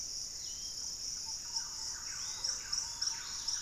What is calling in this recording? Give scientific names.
Campylorhynchus turdinus, Tolmomyias assimilis, Pachysylvia hypoxantha